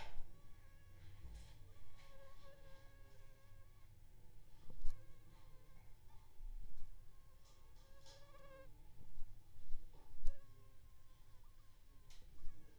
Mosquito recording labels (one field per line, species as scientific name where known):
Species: Aedes aegypti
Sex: female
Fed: unfed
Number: one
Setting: cup